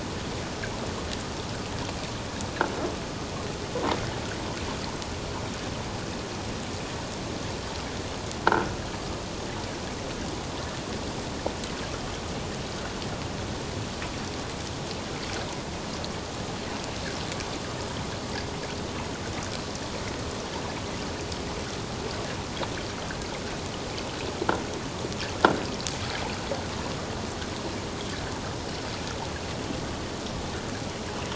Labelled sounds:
8.4	8.7	croaking sound likely from a nearby submerged object, 1.3 to 1.7 kHz

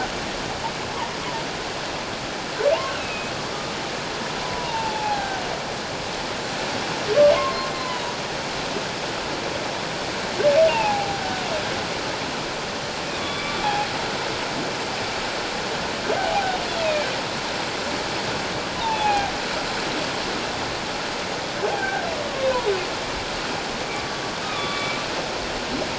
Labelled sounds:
3.0	3.3	humpback whale, 2.4 to 2.7 kHz
4.4	5.4	humpback whale, 0.78 to 1.7 kHz
7.7	8.1	humpback whale, 0.91 to 1.1 kHz
10.7	11.5	humpback whale, 0.78 to 2.9 kHz
13.2	13.6	humpback whale, 1.1 to 3.6 kHz
16.2	16.5	humpback whale, 0.78 to 0.88 kHz
16.8	17.1	humpback whale, 2.3 to 2.7 kHz
18.8	19.3	humpback whale, 0.78 to 2.7 kHz
21.7	22.0	humpback whale, 0.78 to 1.7 kHz
24.4	25.0	humpback whale, 1.1 to 3.5 kHz

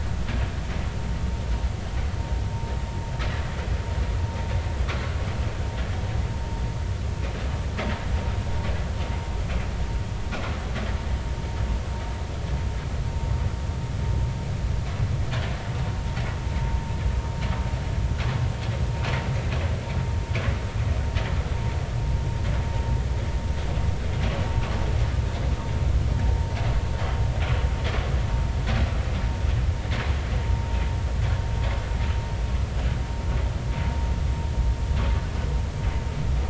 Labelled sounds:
30.4	30.8	vessel noise, 0.86 to 0.99 kHz

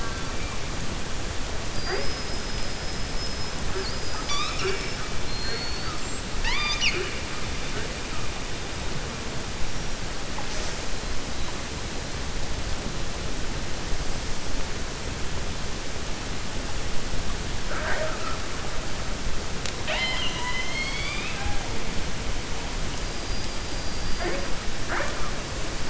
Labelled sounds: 1.7	2.4	killer whale, 4.7 to 5.2 kHz
5.2	6.0	killer whale, 4.1 to 4.6 kHz
19.5	21.6	killer whale, 0.67 to 7.3 kHz

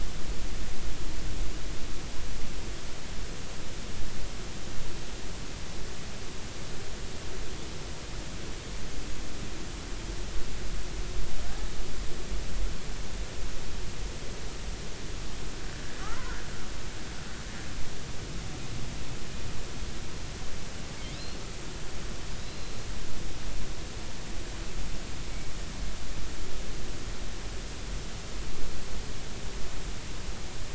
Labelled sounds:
11.5	11.7	killer whale, offshore, 1.5 to 1.8 kHz
16.0	16.4	killer whale, offshore, 1.1 to 1.6 kHz
22.4	22.7	killer whale, offshore, 4.0 to 4.3 kHz

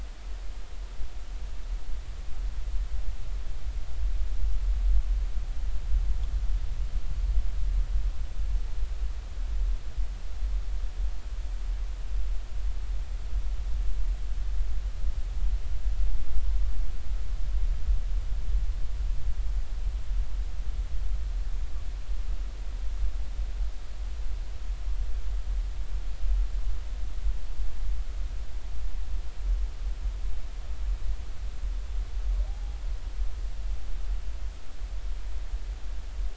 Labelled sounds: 32.5	32.8	humpback whale, 0.80 to 0.90 kHz

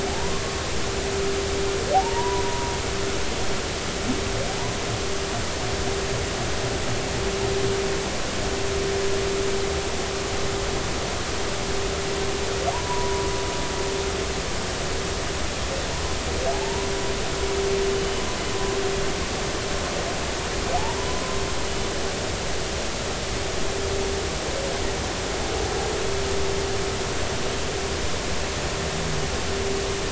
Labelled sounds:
1.9	2.7	humpback whale, 0.80 to 1.0 kHz
12.7	13.3	humpback whale, 0.80 to 1.0 kHz
16.5	16.9	humpback whale, 0.80 to 1.0 kHz
17.9	18.2	humpback whale, 2.9 to 3.0 kHz

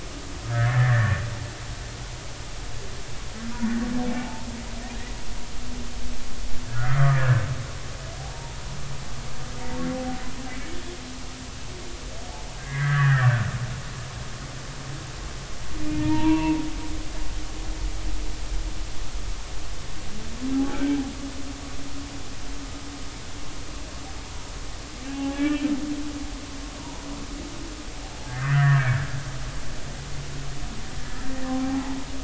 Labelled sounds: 0.5	1.2	humpback whale, 1.4 to 2.1 kHz
4.2	4.5	humpback whale, 0.80 to 1.0 kHz
6.7	7.5	humpback whale, 1.1 to 2.1 kHz
8.2	8.6	humpback whale, 0.80 to 0.99 kHz
12.6	13.3	humpback whale, 1.1 to 2.2 kHz
15.9	16.6	humpback whale, 0.86 to 2.8 kHz
20.6	20.9	humpback whale, 0.80 to 1.6 kHz
25.0	25.7	humpback whale, 0.80 to 2.8 kHz
28.3	29.0	humpback whale, 1.1 to 2.1 kHz
31.0	32.0	humpback whale, 0.80 to 1.8 kHz

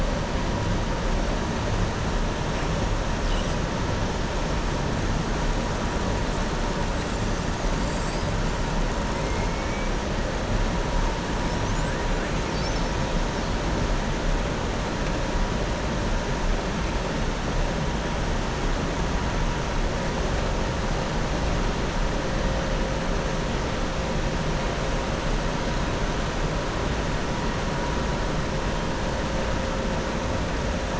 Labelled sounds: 7.8	8.3	killer whale, southern resident, 4.5 to 5.3 kHz
9.4	9.9	killer whale, southern resident, 1.8 to 2.5 kHz

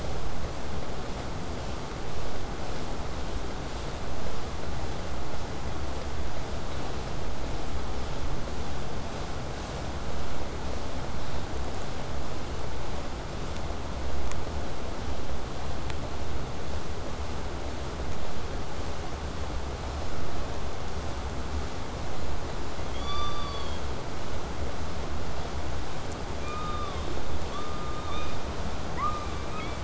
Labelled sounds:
1.2	2.8	killer whale, southern resident, 6.9 to 8.0 kHz
5.0	10.0	vessel noise, 0 to 8.0 kHz
22.9	23.8	killer whale, southern resident, K pod, call S16, 0.96 to 7.6 kHz
26.4	27.1	killer whale, southern resident, K pod, call S16, 0.88 to 5.0 kHz
27.5	28.5	killer whale, southern resident, K pod, call S17, 0.88 to 6.3 kHz
29.0	29.8	killer whale, southern resident, K pod, call S17, 0.77 to 4.9 kHz

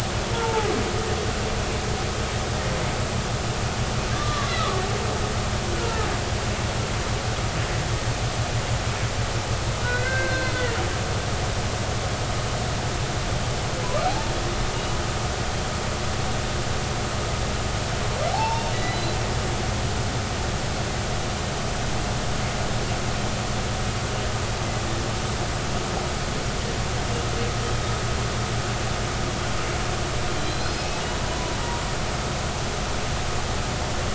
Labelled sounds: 4.1	4.8	humpback whale, 1.0 to 1.4 kHz
5.7	6.1	humpback whale, 0.83 to 1.5 kHz
9.8	10.8	humpback whale, 1.4 to 4.3 kHz
14.0	14.3	humpback whale, 0.80 to 0.96 kHz
18.3	19.2	humpback whale, 0.80 to 4.1 kHz
30.4	31.6	humpback whale, 0.93 to 5.2 kHz

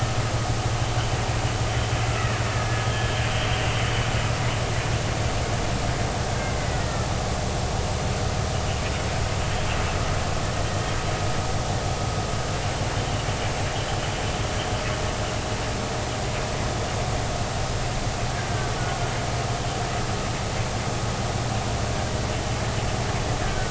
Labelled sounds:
2.2	3.2	killer whale, Bigg's (transient), 1.6 to 3.3 kHz
6.8	7.1	killer whale, Bigg's (transient), 1.7 to 1.9 kHz
23.4	23.7	killer whale, Bigg's (transient), 1.4 to 1.7 kHz

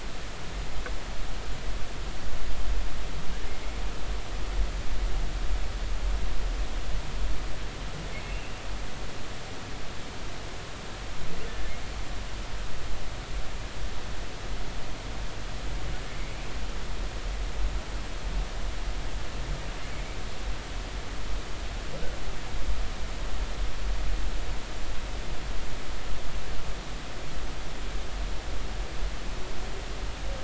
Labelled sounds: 8.3	8.5	humpback whale, 2.6 to 2.8 kHz
11.5	11.7	humpback whale, 1.7 to 1.8 kHz

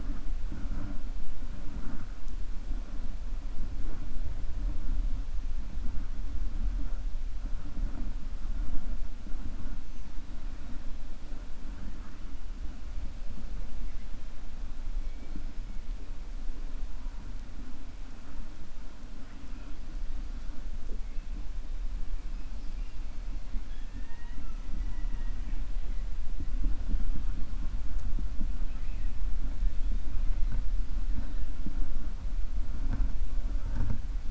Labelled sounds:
23.6	25.6	killer whale, 0.92 to 3.8 kHz

